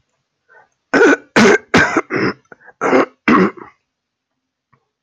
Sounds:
Throat clearing